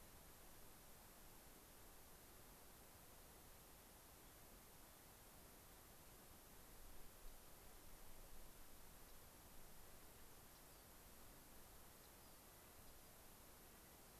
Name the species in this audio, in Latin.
Salpinctes obsoletus, Nucifraga columbiana